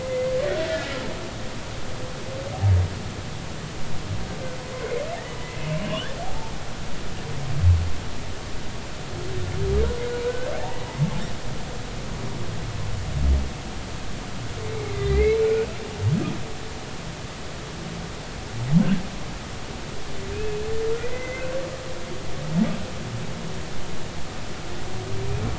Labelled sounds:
0.0	0.9	humpback whale, 1.6 to 2.1 kHz
5.8	6.5	humpback whale, 0.80 to 3.1 kHz
10.2	10.5	humpback whale, 1.4 to 1.7 kHz
14.9	15.5	humpback whale, 1.8 to 4.1 kHz
20.3	20.6	humpback whale, 2.4 to 2.7 kHz
21.0	21.5	humpback whale, 1.9 to 2.1 kHz

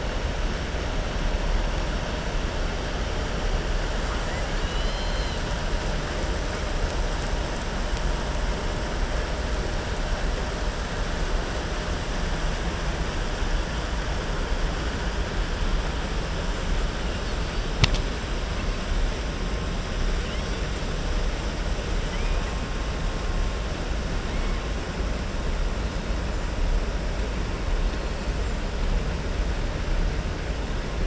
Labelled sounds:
4.0	5.4	killer whale, southern resident, 1.1 to 5.2 kHz

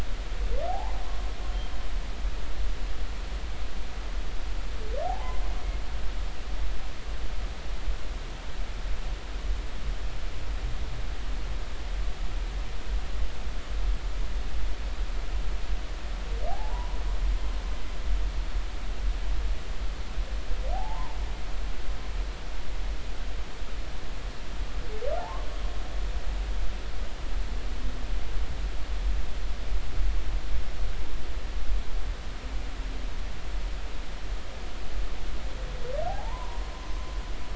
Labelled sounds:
0.7	1.0	humpback whale, 0.80 to 1.1 kHz
5.0	5.4	humpback whale, 0.80 to 1.1 kHz
16.5	17.0	humpback whale, 0.80 to 1.1 kHz
20.7	21.2	humpback whale, 0.80 to 1.1 kHz
25.2	25.5	humpback whale, 0.80 to 1.2 kHz
36.1	37.1	humpback whale, 0.80 to 6.2 kHz

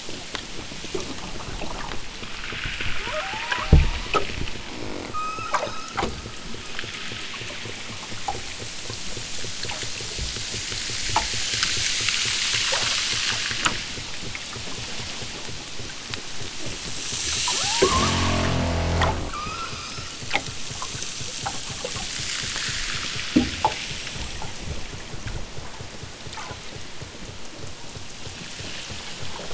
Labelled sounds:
2.9	4.3	killer whale, southern Alaska resident, 0.17 to 2.9 kHz
5.1	6.8	killer whale, southern Alaska resident, 0.85 to 7.9 kHz
17.4	18.8	killer whale, southern Alaska resident, 0.46 to 3.2 kHz
19.2	20.2	killer whale, southern Alaska resident, 0.91 to 5.7 kHz

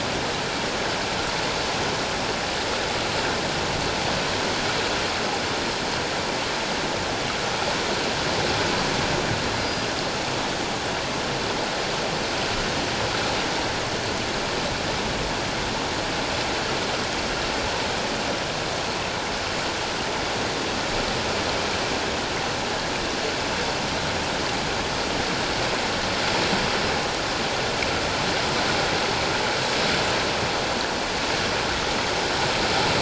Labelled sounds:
9.6	9.9	killer whale, northern resident, G clan, call N24ii, 4.8 to 4.9 kHz

